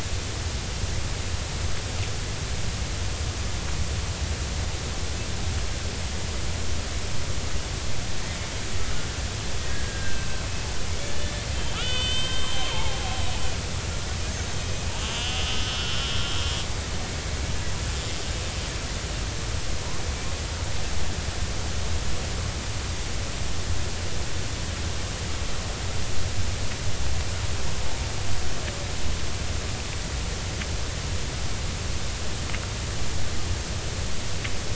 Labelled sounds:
9.7	10.4	killer whale, Bigg's (transient), 1.5 to 2.7 kHz
11.0	11.3	killer whale, Bigg's (transient), 1.7 to 1.8 kHz
11.7	14.7	killer whale, Bigg's (transient), 0.80 to 7.8 kHz
15.0	16.1	killer whale, Bigg's (transient), 1.2 to 3.6 kHz

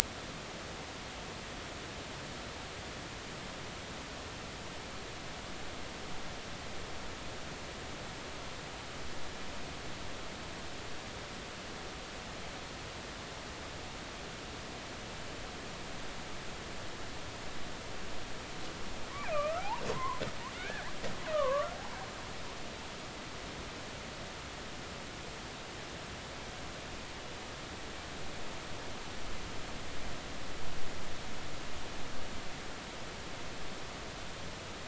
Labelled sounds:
19.1	20.9	killer whale, Bigg's (transient), 0.80 to 2.6 kHz
21.3	22.0	killer whale, Bigg's (transient), 0.80 to 1.3 kHz

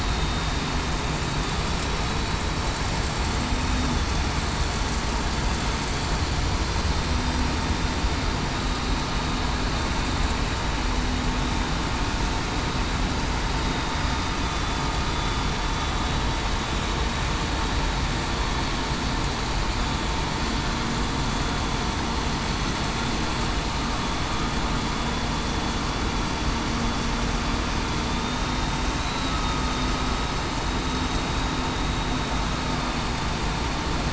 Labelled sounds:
14.4	14.8	vessel noise, 3.5 to 3.6 kHz
29.2	29.6	vessel noise, 1.2 to 1.3 kHz

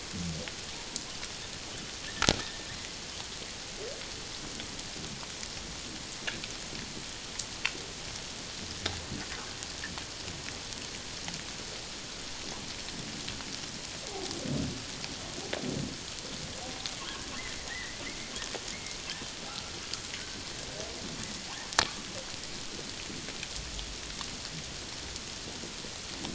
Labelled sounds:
17.7	18.0	humpback whale, 1.7 to 2.1 kHz
18.7	19.0	humpback whale, 2.1 to 2.2 kHz

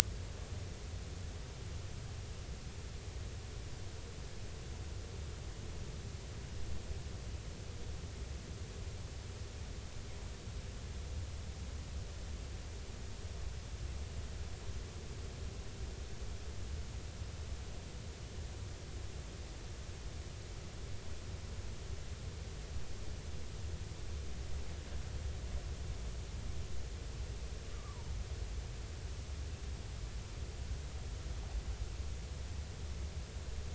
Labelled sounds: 27.7	28.1	fish, 0.86 to 1.3 kHz

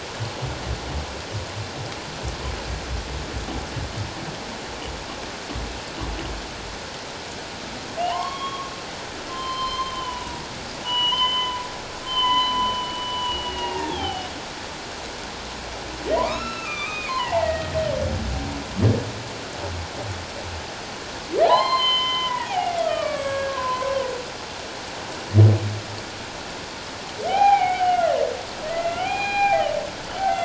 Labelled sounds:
8.1	14.3	humpback whale, 0.78 to 5.3 kHz
16.1	17.8	humpback whale, 0.78 to 5.4 kHz
21.4	23.9	humpback whale, 0.78 to 4.2 kHz
27.3	28.1	humpback whale, 0.78 to 3.3 kHz
28.7	29.7	humpback whale, 0.78 to 8.0 kHz

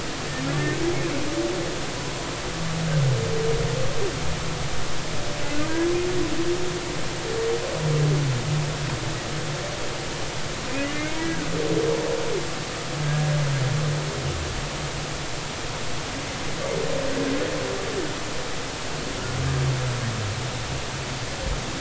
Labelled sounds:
10.9	11.5	humpback whale, 1.4 to 2.3 kHz

